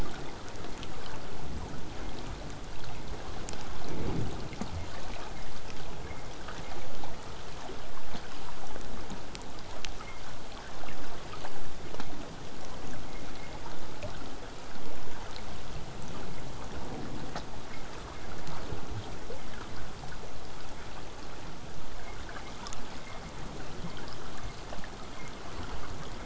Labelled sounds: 16.7	21.7	vessel noise, 0 to 8.0 kHz

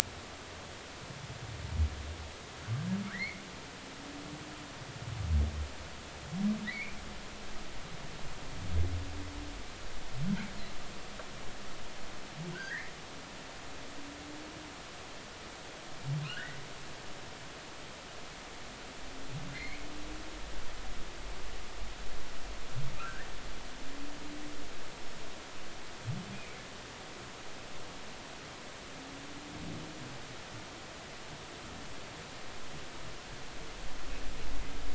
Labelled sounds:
3.1	3.4	humpback whale, 1.2 to 2.3 kHz
6.7	7.0	humpback whale, 1.8 to 2.5 kHz
12.5	12.9	humpback whale, 1.4 to 2.2 kHz
16.3	16.6	humpback whale, 1.3 to 2.0 kHz
19.5	19.8	humpback whale, 1.9 to 4.3 kHz
23.0	23.3	humpback whale, 1.2 to 1.9 kHz
26.3	26.6	humpback whale, 2.2 to 2.6 kHz

